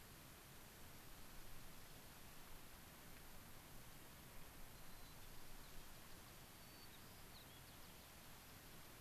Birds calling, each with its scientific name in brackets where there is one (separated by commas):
White-crowned Sparrow (Zonotrichia leucophrys)